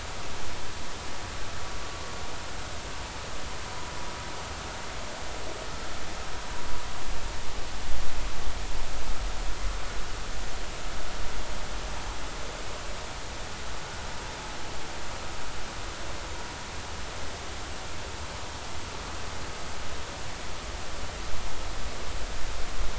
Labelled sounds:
12.1	12.4	vessel noise, 7.3 to 7.6 kHz

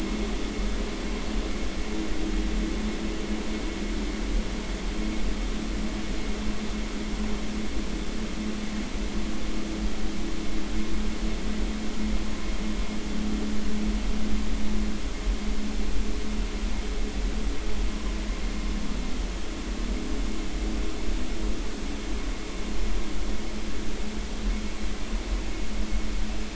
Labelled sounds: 17.9	18.1	vessel noise, 0.96 to 1.2 kHz

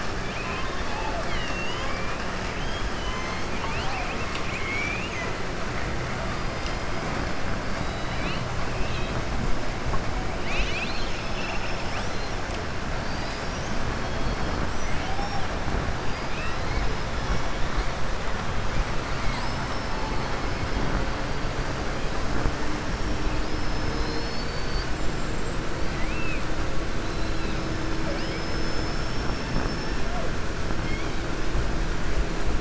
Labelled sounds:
0.2	2.1	killer whale, southern resident, 0.65 to 6.5 kHz
2.5	5.3	killer whale, southern resident, 0.77 to 6.3 kHz
7.7	8.4	killer whale, southern resident, 1.9 to 4.9 kHz
14.8	15.3	killer whale, southern resident, 0.75 to 3.5 kHz
19.1	20.0	killer whale, southern resident, 2.0 to 6.1 kHz
23.4	24.9	killer whale, southern resident, 4.1 to 5.6 kHz
25.9	26.4	killer whale, southern resident, 2.0 to 2.7 kHz

